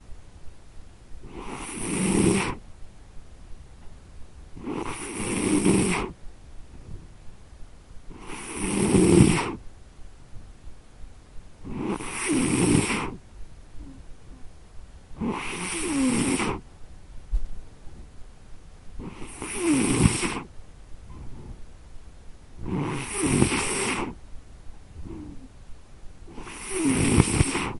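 Rhythmic snoring gradually increases before fading away. 1.1 - 2.7
Rhythmic snoring gradually increases before fading away. 4.5 - 6.4
Rhythmic snoring gradually increases before fading away. 8.1 - 9.8
Rhythmic snoring gradually increases before fading away. 11.6 - 13.4
A muffled voice fading away in the room. 13.6 - 14.7
Rhythmic snoring gradually increases before fading away. 15.1 - 16.7
Rhythmic snoring gradually increases before fading away. 18.9 - 20.6
Rhythmic snoring gradually increases before fading away. 22.5 - 24.3
Rhythmic snoring gradually increases before fading away. 26.3 - 27.8

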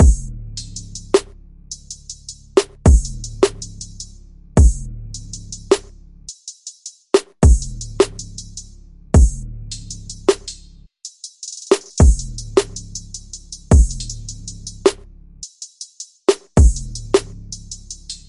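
A rhythmic drumbeat repeats loudly. 0.0 - 18.3
Someone ignites a gas stove. 0.4 - 1.1
Someone ignites a gas stove. 1.7 - 2.4
Someone ignites a gas stove. 6.2 - 6.9
Someone ignites a gas stove. 12.8 - 13.6
Someone ignites a gas stove. 15.4 - 16.1
Someone ignites a gas stove. 17.5 - 18.0

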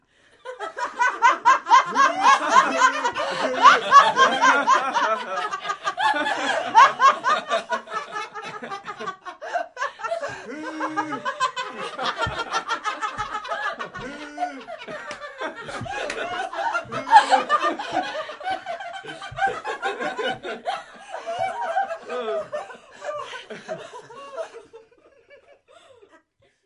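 Several people laughing loudly and repeatedly. 0.4 - 25.0
A person laughs while taking a large gasp of air. 3.0 - 3.6
A person gasps for air. 9.4 - 9.8
A person gasps for air. 13.5 - 13.9
A person gasps loudly. 17.1 - 17.8
A person inhales loudly. 23.0 - 24.4

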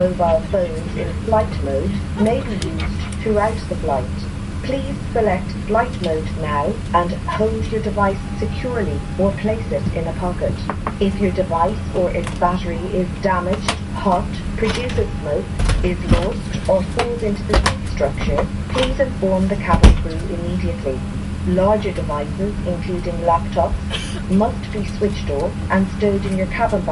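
A warning sign is speaking in English. 0.0 - 12.2
A warning sign is speaking in English while someone sits nearby. 12.7 - 20.0
A warning sign is speaking in English. 20.1 - 26.9

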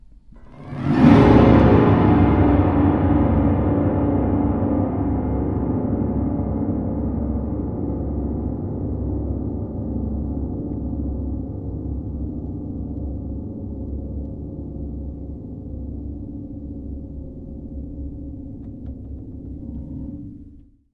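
A loud, eerie piano note bursts, then gradually descends and fades into a softer, higher-pitched tone. 0.0 - 20.9

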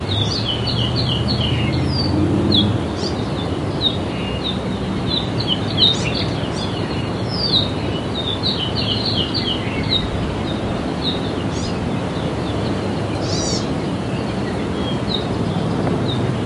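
Birds humming and singing near a forest stream. 0.0 - 16.5

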